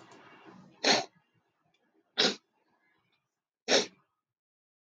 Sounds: Sniff